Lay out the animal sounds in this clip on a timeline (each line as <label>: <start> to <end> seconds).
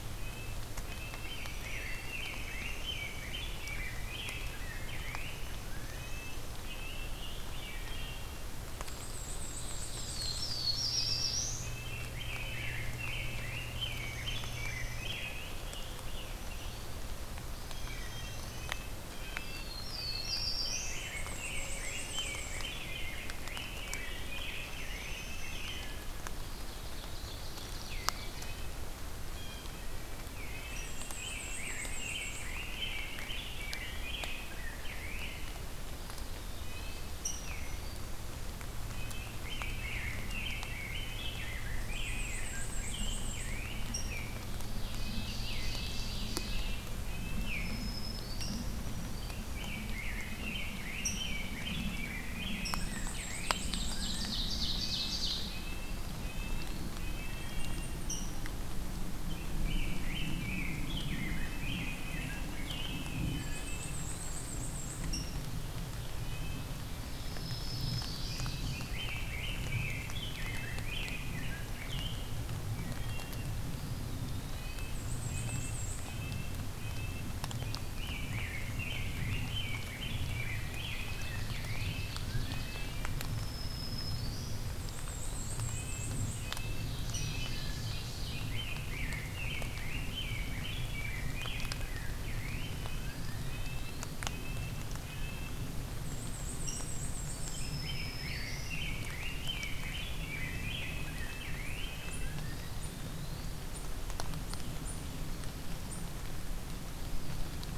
Red-breasted Nuthatch (Sitta canadensis): 0.0 to 2.7 seconds
Rose-breasted Grosbeak (Pheucticus ludovicianus): 1.1 to 5.3 seconds
Red-breasted Nuthatch (Sitta canadensis): 3.6 to 7.3 seconds
Wood Thrush (Hylocichla mustelina): 7.5 to 8.4 seconds
Black-and-white Warbler (Mniotilta varia): 8.5 to 10.5 seconds
Ovenbird (Seiurus aurocapilla): 9.4 to 11.5 seconds
Black-throated Blue Warbler (Setophaga caerulescens): 9.8 to 11.8 seconds
Rose-breasted Grosbeak (Pheucticus ludovicianus): 11.6 to 16.9 seconds
Dark-eyed Junco (Junco hyemalis): 13.6 to 15.2 seconds
Dark-eyed Junco (Junco hyemalis): 17.5 to 18.9 seconds
Blue Jay (Cyanocitta cristata): 17.8 to 19.8 seconds
Red-breasted Nuthatch (Sitta canadensis): 18.3 to 20.5 seconds
Black-throated Blue Warbler (Setophaga caerulescens): 19.2 to 21.0 seconds
Rose-breasted Grosbeak (Pheucticus ludovicianus): 20.6 to 26.1 seconds
Black-and-white Warbler (Mniotilta varia): 20.8 to 22.8 seconds
Dark-eyed Junco (Junco hyemalis): 24.5 to 26.0 seconds
Ovenbird (Seiurus aurocapilla): 26.2 to 28.5 seconds
Blue Jay (Cyanocitta cristata): 29.2 to 29.9 seconds
Black-and-white Warbler (Mniotilta varia): 30.7 to 32.6 seconds
Rose-breasted Grosbeak (Pheucticus ludovicianus): 31.0 to 35.5 seconds
Eastern Wood-Pewee (Contopus virens): 35.9 to 37.2 seconds
Red-breasted Nuthatch (Sitta canadensis): 36.5 to 37.2 seconds
Rose-breasted Grosbeak (Pheucticus ludovicianus): 37.1 to 37.7 seconds
Rose-breasted Grosbeak (Pheucticus ludovicianus): 38.8 to 44.5 seconds
Black-and-white Warbler (Mniotilta varia): 41.7 to 43.6 seconds
Ovenbird (Seiurus aurocapilla): 44.6 to 46.9 seconds
Red-breasted Nuthatch (Sitta canadensis): 44.8 to 47.4 seconds
Black-throated Green Warbler (Setophaga virens): 47.3 to 48.7 seconds
Rose-breasted Grosbeak (Pheucticus ludovicianus): 49.3 to 53.6 seconds
Black-and-white Warbler (Mniotilta varia): 52.5 to 54.4 seconds
Ovenbird (Seiurus aurocapilla): 53.6 to 55.5 seconds
Red-breasted Nuthatch (Sitta canadensis): 54.6 to 57.8 seconds
Eastern Wood-Pewee (Contopus virens): 55.8 to 57.0 seconds
Rose-breasted Grosbeak (Pheucticus ludovicianus): 58.0 to 58.5 seconds
Rose-breasted Grosbeak (Pheucticus ludovicianus): 59.4 to 63.3 seconds
Wood Thrush (Hylocichla mustelina): 63.1 to 64.1 seconds
Black-and-white Warbler (Mniotilta varia): 63.1 to 65.1 seconds
Eastern Wood-Pewee (Contopus virens): 63.9 to 64.5 seconds
Rose-breasted Grosbeak (Pheucticus ludovicianus): 65.1 to 65.4 seconds
Red-breasted Nuthatch (Sitta canadensis): 66.2 to 66.8 seconds
Ovenbird (Seiurus aurocapilla): 66.8 to 68.6 seconds
Black-throated Green Warbler (Setophaga virens): 67.1 to 68.6 seconds
Rose-breasted Grosbeak (Pheucticus ludovicianus): 68.4 to 72.3 seconds
Wood Thrush (Hylocichla mustelina): 72.6 to 73.6 seconds
Eastern Wood-Pewee (Contopus virens): 73.6 to 74.8 seconds
Red-breasted Nuthatch (Sitta canadensis): 74.5 to 77.3 seconds
Black-and-white Warbler (Mniotilta varia): 74.8 to 76.1 seconds
Rose-breasted Grosbeak (Pheucticus ludovicianus): 77.8 to 82.2 seconds
Red-breasted Nuthatch (Sitta canadensis): 80.3 to 83.1 seconds
Ovenbird (Seiurus aurocapilla): 80.9 to 82.9 seconds
Black-throated Green Warbler (Setophaga virens): 83.1 to 84.6 seconds
Eastern Wood-Pewee (Contopus virens): 84.3 to 85.7 seconds
Black-and-white Warbler (Mniotilta varia): 84.6 to 86.5 seconds
Red-breasted Nuthatch (Sitta canadensis): 85.5 to 87.7 seconds
Ovenbird (Seiurus aurocapilla): 86.4 to 88.4 seconds
Rose-breasted Grosbeak (Pheucticus ludovicianus): 88.5 to 92.8 seconds
Red-breasted Nuthatch (Sitta canadensis): 92.6 to 95.7 seconds
Eastern Wood-Pewee (Contopus virens): 92.8 to 94.2 seconds
Black-and-white Warbler (Mniotilta varia): 95.9 to 97.8 seconds
Rose-breasted Grosbeak (Pheucticus ludovicianus): 96.7 to 97.0 seconds
Black-throated Green Warbler (Setophaga virens): 97.1 to 98.8 seconds
Rose-breasted Grosbeak (Pheucticus ludovicianus): 97.4 to 102.0 seconds
Red-breasted Nuthatch (Sitta canadensis): 100.2 to 102.6 seconds
Eastern Wood-Pewee (Contopus virens): 102.1 to 103.7 seconds
Eastern Wood-Pewee (Contopus virens): 106.8 to 107.7 seconds